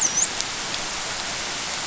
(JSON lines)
{"label": "biophony, dolphin", "recorder": "SoundTrap 500"}